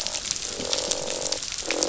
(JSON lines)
{"label": "biophony, croak", "recorder": "SoundTrap 500"}